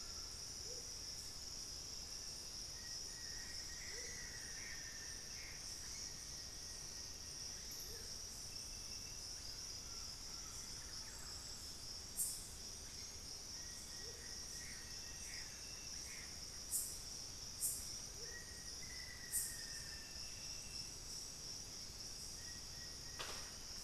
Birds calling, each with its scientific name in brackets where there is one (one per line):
Collared Trogon (Trogon collaris)
Plain-winged Antshrike (Thamnophilus schistaceus)
Black-faced Antthrush (Formicarius analis)
Gray Antbird (Cercomacra cinerascens)
White-bellied Tody-Tyrant (Hemitriccus griseipectus)
Thrush-like Wren (Campylorhynchus turdinus)
Amazonian Motmot (Momotus momota)